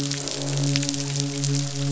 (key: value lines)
label: biophony, midshipman
recorder: SoundTrap 500

label: biophony, croak
recorder: SoundTrap 500